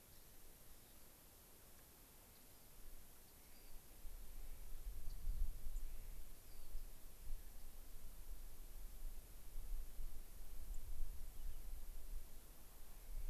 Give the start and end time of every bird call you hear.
[2.29, 2.69] Rock Wren (Salpinctes obsoletus)
[3.19, 3.79] Rock Wren (Salpinctes obsoletus)
[4.99, 5.19] unidentified bird
[5.69, 5.89] White-crowned Sparrow (Zonotrichia leucophrys)
[6.29, 6.89] Rock Wren (Salpinctes obsoletus)
[10.69, 10.79] White-crowned Sparrow (Zonotrichia leucophrys)
[11.29, 11.59] unidentified bird

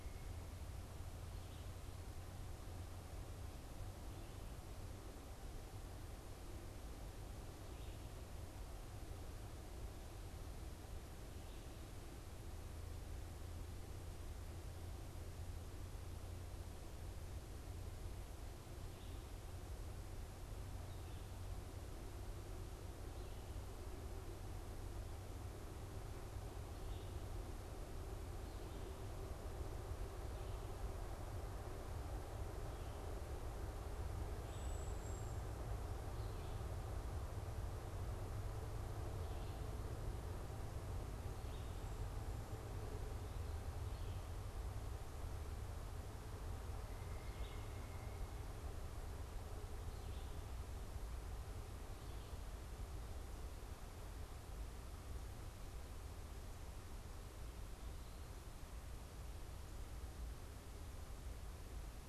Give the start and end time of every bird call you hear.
[34.27, 35.77] Cedar Waxwing (Bombycilla cedrorum)
[34.27, 50.56] Red-eyed Vireo (Vireo olivaceus)
[46.87, 48.37] Pileated Woodpecker (Dryocopus pileatus)

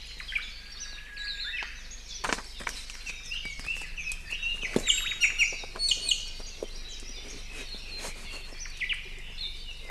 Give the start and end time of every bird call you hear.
[0.00, 0.60] Omao (Myadestes obscurus)
[0.50, 1.80] Japanese Bush Warbler (Horornis diphone)
[0.70, 1.10] Warbling White-eye (Zosterops japonicus)
[1.10, 1.70] Hawaii Akepa (Loxops coccineus)
[3.00, 5.70] Red-billed Leiothrix (Leiothrix lutea)
[4.70, 6.50] Iiwi (Drepanis coccinea)
[4.80, 5.40] Omao (Myadestes obscurus)
[8.70, 9.20] Omao (Myadestes obscurus)

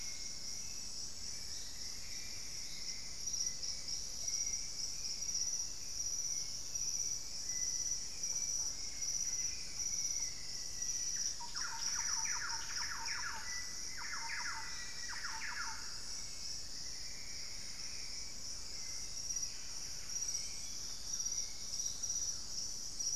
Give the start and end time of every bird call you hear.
[0.00, 21.73] Hauxwell's Thrush (Turdus hauxwelli)
[1.23, 3.83] Plumbeous Antbird (Myrmelastes hyperythrus)
[4.13, 4.43] Russet-backed Oropendola (Psarocolius angustifrons)
[6.13, 7.43] Ringed Antpipit (Corythopis torquatus)
[8.73, 10.03] Buff-breasted Wren (Cantorchilus leucotis)
[8.93, 15.43] Black-faced Antthrush (Formicarius analis)
[11.03, 16.13] Thrush-like Wren (Campylorhynchus turdinus)
[16.13, 18.73] Plumbeous Antbird (Myrmelastes hyperythrus)
[17.43, 21.03] Thrush-like Wren (Campylorhynchus turdinus)
[19.23, 20.53] Buff-breasted Wren (Cantorchilus leucotis)
[20.23, 22.33] Olivaceous Woodcreeper (Sittasomus griseicapillus)

